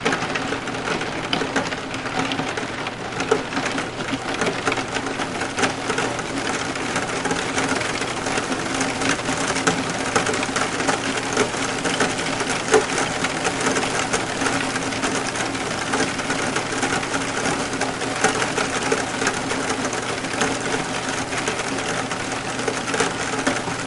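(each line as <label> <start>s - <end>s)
Heavy raindrops fall steadily. 0.0s - 23.9s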